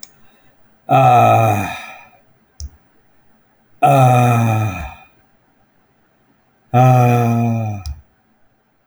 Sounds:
Sigh